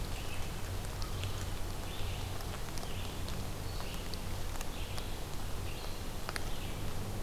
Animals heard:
Red-eyed Vireo (Vireo olivaceus)

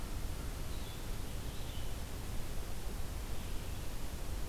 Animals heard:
Red-eyed Vireo (Vireo olivaceus)

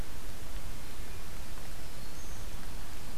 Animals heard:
Black-throated Green Warbler (Setophaga virens)

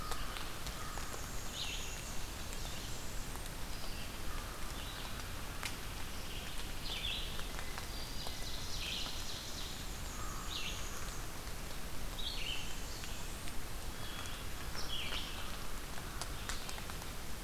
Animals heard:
Red-eyed Vireo (Vireo olivaceus), Black-throated Green Warbler (Setophaga virens), Hermit Thrush (Catharus guttatus), Northern Parula (Setophaga americana), Blackburnian Warbler (Setophaga fusca), Ovenbird (Seiurus aurocapilla), American Crow (Corvus brachyrhynchos)

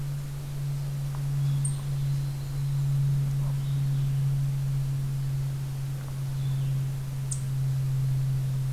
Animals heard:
Eastern Chipmunk (Tamias striatus), Yellow-rumped Warbler (Setophaga coronata)

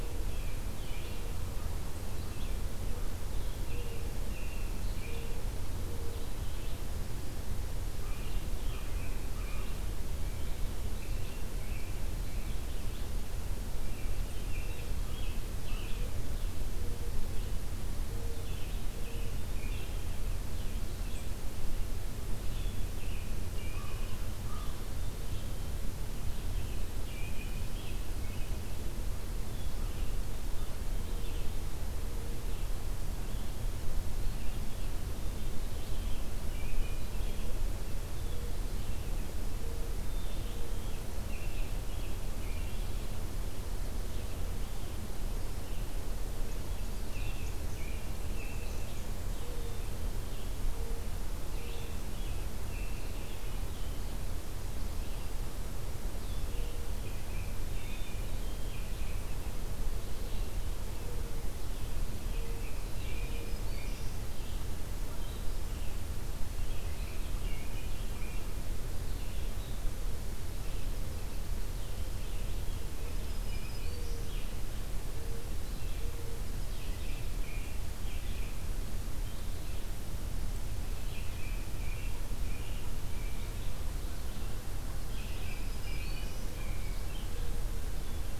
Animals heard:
Black-throated Green Warbler (Setophaga virens), Nashville Warbler (Leiothlypis ruficapilla), Black-capped Chickadee (Poecile atricapillus), American Crow (Corvus brachyrhynchos), American Robin (Turdus migratorius), Red-eyed Vireo (Vireo olivaceus)

